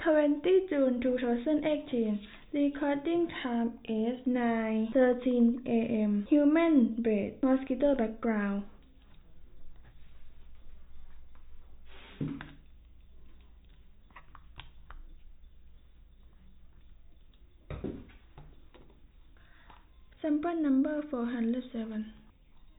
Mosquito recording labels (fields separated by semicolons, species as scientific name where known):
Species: no mosquito; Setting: cup